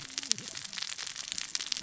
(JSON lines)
{"label": "biophony, cascading saw", "recorder": "SoundTrap 600 or HydroMoth"}